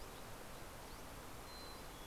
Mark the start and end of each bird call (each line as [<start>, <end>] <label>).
[0.00, 2.06] Dusky Flycatcher (Empidonax oberholseri)
[1.20, 2.06] Mountain Chickadee (Poecile gambeli)